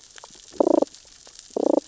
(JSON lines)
{"label": "biophony, damselfish", "recorder": "SoundTrap 600 or HydroMoth"}